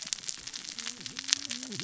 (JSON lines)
{"label": "biophony, cascading saw", "recorder": "SoundTrap 600 or HydroMoth"}